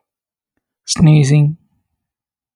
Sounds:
Sneeze